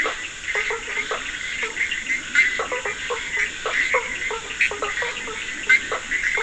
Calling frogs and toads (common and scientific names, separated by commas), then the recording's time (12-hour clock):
Scinax perereca
3:30am